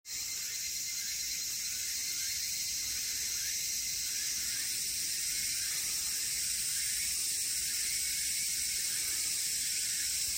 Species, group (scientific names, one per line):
Tanna japonensis
Cicadidae